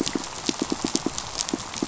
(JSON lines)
{"label": "biophony, pulse", "recorder": "SoundTrap 500"}